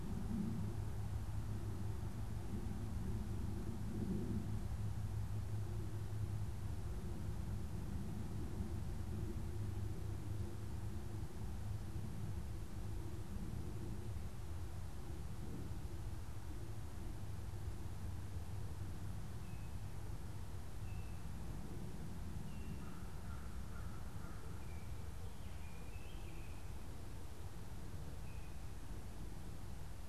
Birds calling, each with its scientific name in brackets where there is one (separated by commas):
American Crow (Corvus brachyrhynchos), unidentified bird